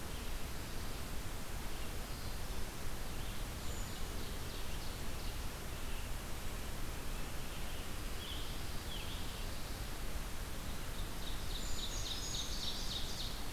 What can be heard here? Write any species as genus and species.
Setophaga caerulescens, Seiurus aurocapilla, Certhia americana, Piranga olivacea, Setophaga pinus